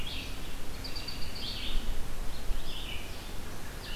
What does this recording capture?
Red-eyed Vireo, American Robin